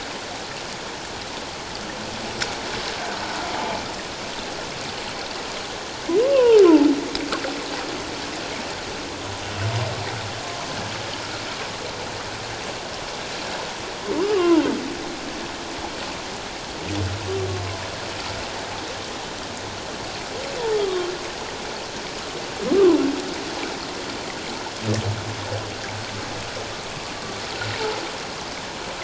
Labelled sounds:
6.2	6.6	humpback whale, 0.81 to 1.2 kHz
14.2	14.6	humpback whale, 0.84 to 3.0 kHz
20.7	21.1	humpback whale, 1.0 to 1.3 kHz
26.9	27.1	humpback whale, 1.1 to 1.2 kHz

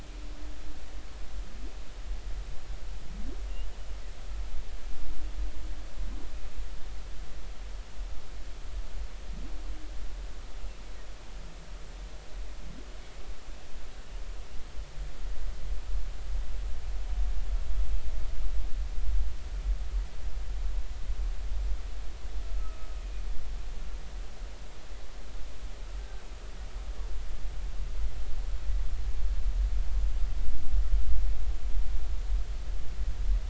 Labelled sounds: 22.6	22.9	humpback whale, 1.2 to 1.3 kHz
26.0	26.2	humpback whale, 1.5 to 1.7 kHz

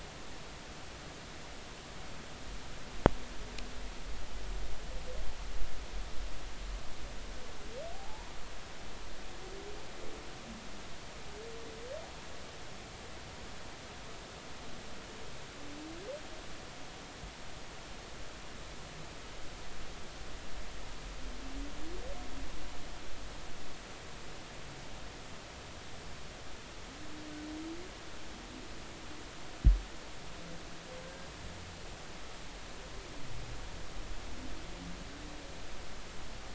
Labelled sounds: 8.9	9.3	humpback whale, 0.80 to 1.0 kHz
31.0	31.3	humpback whale, 1.5 to 1.8 kHz

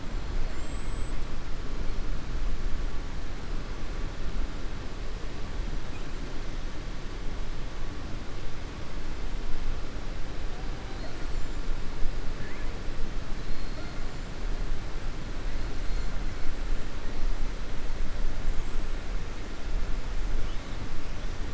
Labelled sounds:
0.4	1.2	killer whale, 6.9 to 7.9 kHz
18.5	19.1	killer whale, 6.6 to 8.0 kHz

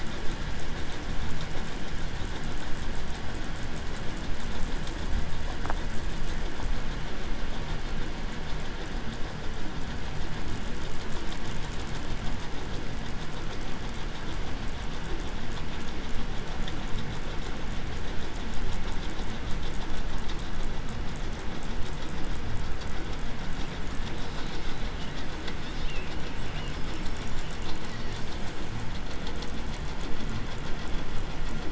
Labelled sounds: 24.0	28.3	killer whale, southern resident, 1.2 to 8.0 kHz

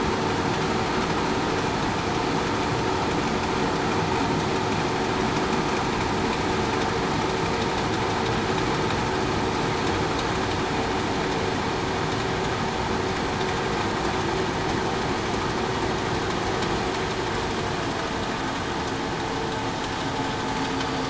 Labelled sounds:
20.6	21.0	killer whale, southern resident, 4.6 to 4.7 kHz

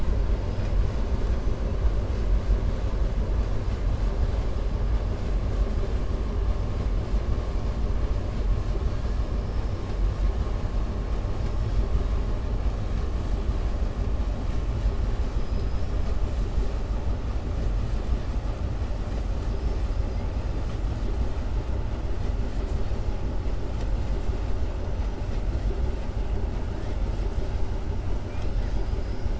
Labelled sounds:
15.2	16.1	killer whale, southern resident, 4.0 to 6.2 kHz

